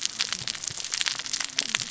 {"label": "biophony, cascading saw", "recorder": "SoundTrap 600 or HydroMoth"}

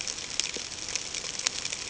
{"label": "ambient", "recorder": "HydroMoth"}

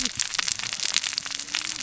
{"label": "biophony, cascading saw", "recorder": "SoundTrap 600 or HydroMoth"}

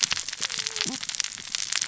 {"label": "biophony, cascading saw", "recorder": "SoundTrap 600 or HydroMoth"}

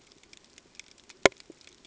{"label": "ambient", "recorder": "HydroMoth"}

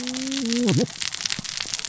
{"label": "biophony, cascading saw", "recorder": "SoundTrap 600 or HydroMoth"}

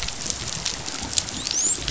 {"label": "biophony, dolphin", "recorder": "SoundTrap 500"}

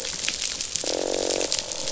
{"label": "biophony, croak", "recorder": "SoundTrap 500"}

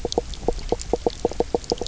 {"label": "biophony, knock croak", "recorder": "SoundTrap 300"}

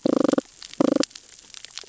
{"label": "biophony, damselfish", "recorder": "SoundTrap 600 or HydroMoth"}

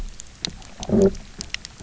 {"label": "biophony, low growl", "recorder": "SoundTrap 300"}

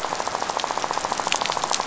{"label": "biophony, rattle", "recorder": "SoundTrap 500"}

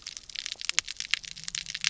{"label": "biophony", "recorder": "SoundTrap 300"}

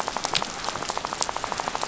{"label": "biophony, rattle", "recorder": "SoundTrap 500"}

